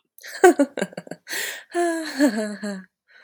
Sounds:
Laughter